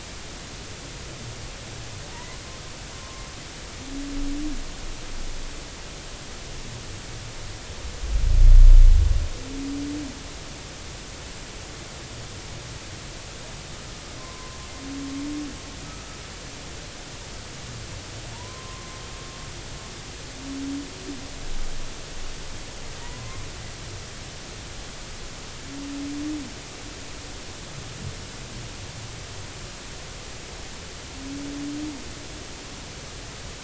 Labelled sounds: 2.1	3.2	humpback whale, 0.99 to 2.2 kHz
14.2	14.6	humpback whale, 0.96 to 1.1 kHz
18.3	18.9	humpback whale, 0.86 to 1.2 kHz
23.0	23.4	humpback whale, 0.90 to 1.1 kHz

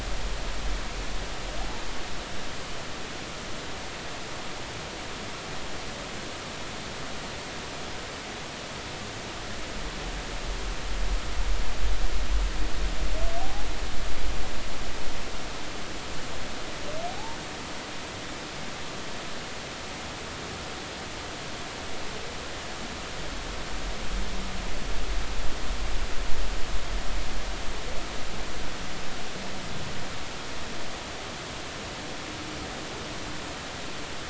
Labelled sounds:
13.4	13.7	humpback whale, 0.80 to 0.86 kHz

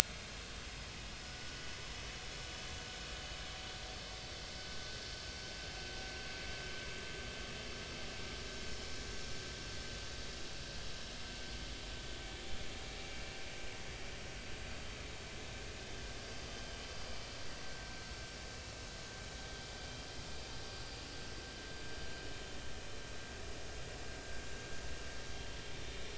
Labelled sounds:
0.1	0.4	vessel noise, 5.0 to 5.2 kHz
1.2	1.8	vessel noise, 1.4 to 5.3 kHz
18.1	18.4	vessel noise, 5.4 to 5.6 kHz

